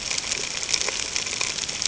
{"label": "ambient", "recorder": "HydroMoth"}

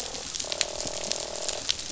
{"label": "biophony, croak", "recorder": "SoundTrap 500"}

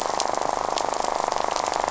{"label": "biophony, rattle", "recorder": "SoundTrap 500"}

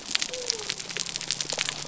{"label": "biophony", "recorder": "SoundTrap 300"}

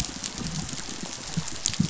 {"label": "biophony, chatter", "recorder": "SoundTrap 500"}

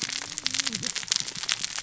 {"label": "biophony, cascading saw", "recorder": "SoundTrap 600 or HydroMoth"}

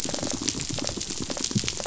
{"label": "biophony, rattle response", "recorder": "SoundTrap 500"}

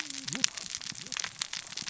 {"label": "biophony, cascading saw", "recorder": "SoundTrap 600 or HydroMoth"}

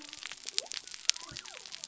{"label": "biophony", "recorder": "SoundTrap 300"}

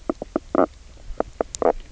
{"label": "biophony, knock croak", "recorder": "SoundTrap 300"}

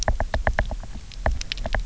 {"label": "biophony, knock", "recorder": "SoundTrap 300"}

